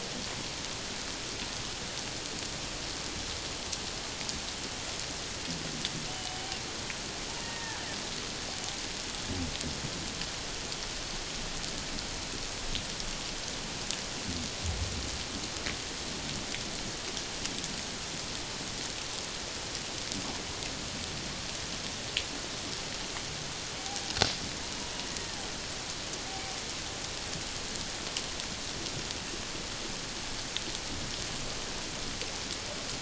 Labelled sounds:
6.1	6.4	killer whale, Bigg's (transient), call T01, 2.9 to 3.1 kHz
7.4	7.8	killer whale, Bigg's (transient), call T02, 1.6 to 1.9 kHz
25.1	25.4	killer whale, Bigg's (transient), 1.8 to 1.9 kHz
26.3	26.6	killer whale, Bigg's (transient), 0.78 to 0.84 kHz

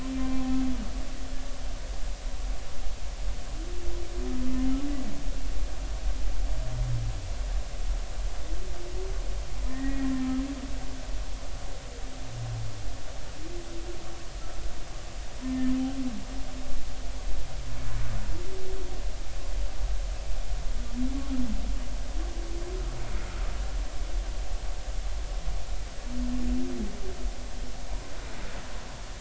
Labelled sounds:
0.2	0.6	humpback whale, 0.80 to 1.1 kHz
9.7	10.1	humpback whale, 1.7 to 2.0 kHz

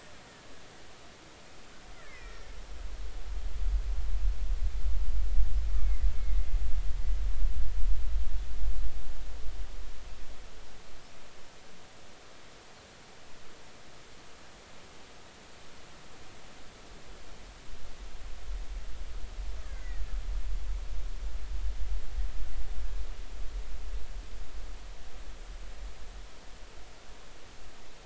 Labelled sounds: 2.0	2.5	killer whale, Bigg's (transient), 1.8 to 5.6 kHz
5.8	6.1	killer whale, Bigg's (transient), 1.9 to 2.3 kHz
19.6	20.0	killer whale, Bigg's (transient), 1.4 to 2.2 kHz

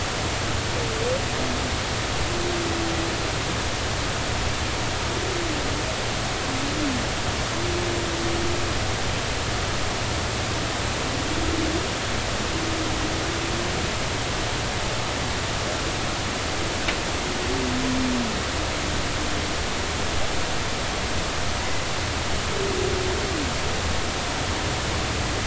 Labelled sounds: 21.6	21.9	humpback whale, 2.0 to 2.1 kHz

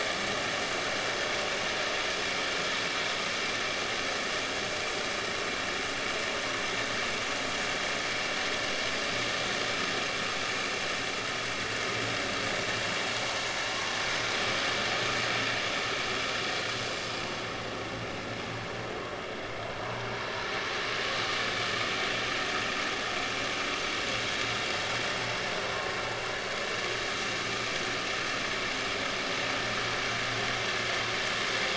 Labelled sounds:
19.8	20.1	vessel noise, 0.86 to 1.2 kHz
25.6	26.0	vessel noise, 0.96 to 1.1 kHz

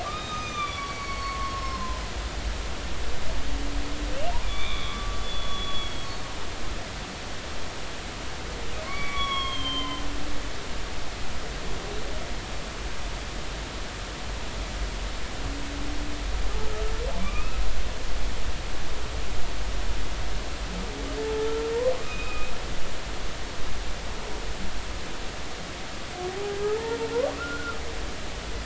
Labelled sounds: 0.0	2.0	humpback whale, 0.93 to 6.3 kHz
2.5	2.8	humpback whale, 5.2 to 5.5 kHz
4.4	6.1	humpback whale, 1.1 to 3.8 kHz
8.8	10.0	humpback whale, 0.96 to 5.6 kHz
17.2	17.6	humpback whale, 1.1 to 2.7 kHz
22.0	22.5	humpback whale, 1.2 to 2.6 kHz
26.3	26.6	humpback whale, 0.80 to 0.86 kHz
27.4	27.8	humpback whale, 1.2 to 1.5 kHz

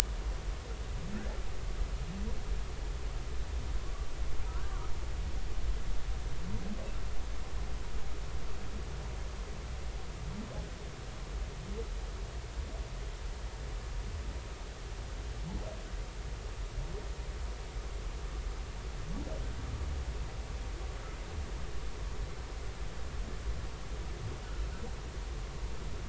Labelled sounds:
4.5	4.9	humpback whale, 1.0 to 1.7 kHz

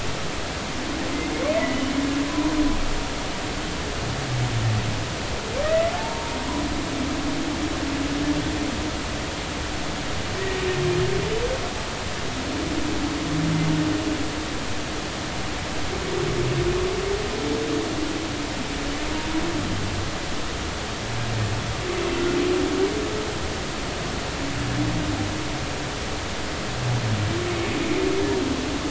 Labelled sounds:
1.6	2.5	humpback whale, 0.90 to 2.0 kHz
5.6	6.3	humpback whale, 0.83 to 2.0 kHz

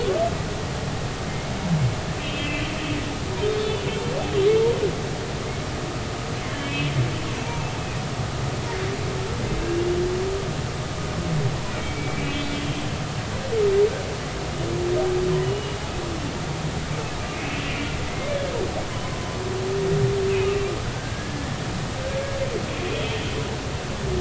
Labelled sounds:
2.2	2.6	humpback whale, 2.5 to 3.3 kHz
3.6	3.8	humpback whale, 3.4 to 3.5 kHz
6.5	7.0	humpback whale, 2.2 to 3.3 kHz
9.6	9.9	humpback whale, 2.6 to 2.8 kHz
11.7	12.8	humpback whale, 2.2 to 3.5 kHz
15.4	15.8	humpback whale, 2.8 to 3.0 kHz
17.3	17.7	humpback whale, 2.4 to 2.7 kHz
18.1	18.5	humpback whale, 1.6 to 2.2 kHz
20.8	21.5	humpback whale, 1.4 to 1.9 kHz

